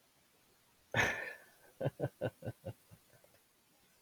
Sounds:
Laughter